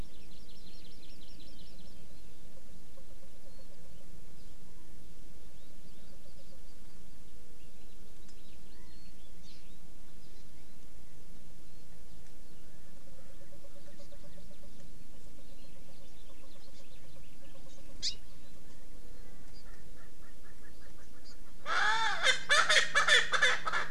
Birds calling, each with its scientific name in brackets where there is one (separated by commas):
House Finch (Haemorhous mexicanus), Erckel's Francolin (Pternistis erckelii), Hawaii Amakihi (Chlorodrepanis virens), Warbling White-eye (Zosterops japonicus), Chinese Hwamei (Garrulax canorus)